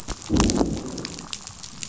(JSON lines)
{"label": "biophony, growl", "recorder": "SoundTrap 500"}